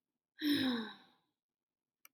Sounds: Sigh